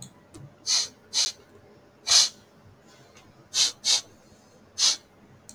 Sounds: Sniff